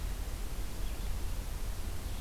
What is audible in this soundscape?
forest ambience